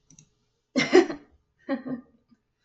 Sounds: Laughter